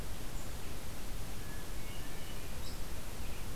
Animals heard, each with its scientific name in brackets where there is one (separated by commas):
Hermit Thrush (Catharus guttatus)